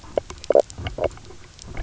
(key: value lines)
label: biophony, knock croak
recorder: SoundTrap 300